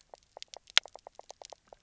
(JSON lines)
{"label": "biophony, knock croak", "recorder": "SoundTrap 300"}